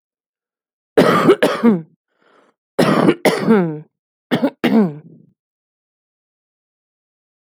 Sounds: Cough